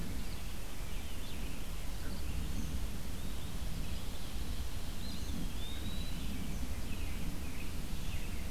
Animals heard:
American Robin (Turdus migratorius), Eastern Wood-Pewee (Contopus virens)

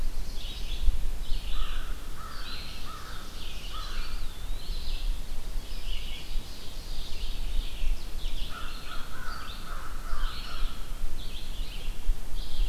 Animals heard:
Blue Jay (Cyanocitta cristata), Ovenbird (Seiurus aurocapilla), Red-eyed Vireo (Vireo olivaceus), Eastern Wood-Pewee (Contopus virens), American Crow (Corvus brachyrhynchos)

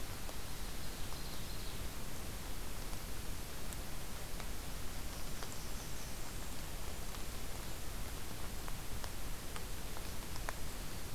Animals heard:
Ovenbird (Seiurus aurocapilla), Blackburnian Warbler (Setophaga fusca)

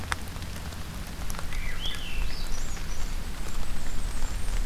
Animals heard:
Blackburnian Warbler (Setophaga fusca), Swainson's Thrush (Catharus ustulatus)

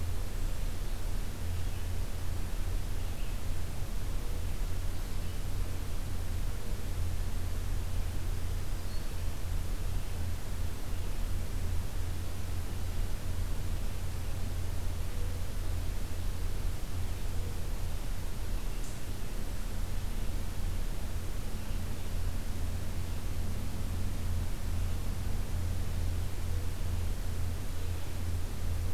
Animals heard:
Red-eyed Vireo (Vireo olivaceus), Black-throated Green Warbler (Setophaga virens)

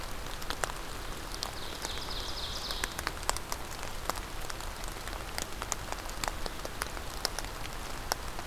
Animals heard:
Ovenbird (Seiurus aurocapilla)

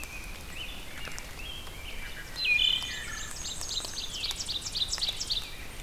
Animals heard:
Wood Thrush (Hylocichla mustelina), Ovenbird (Seiurus aurocapilla), Rose-breasted Grosbeak (Pheucticus ludovicianus), Black-and-white Warbler (Mniotilta varia)

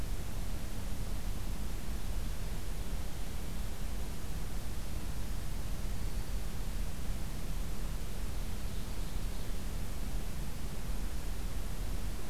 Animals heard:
Ovenbird (Seiurus aurocapilla), Black-throated Green Warbler (Setophaga virens)

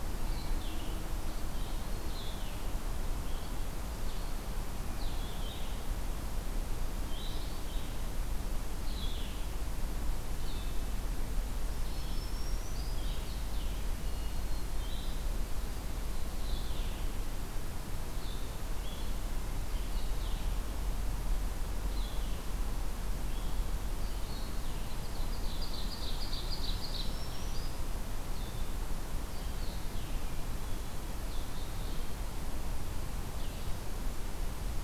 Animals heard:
Red-eyed Vireo (Vireo olivaceus), Black-throated Green Warbler (Setophaga virens), Ovenbird (Seiurus aurocapilla)

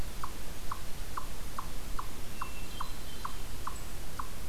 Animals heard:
Eastern Chipmunk (Tamias striatus), Hermit Thrush (Catharus guttatus)

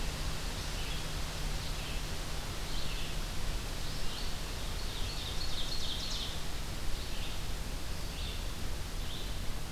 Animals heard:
Red-eyed Vireo (Vireo olivaceus), Ovenbird (Seiurus aurocapilla)

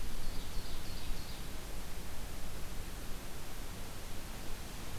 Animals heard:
Ovenbird (Seiurus aurocapilla)

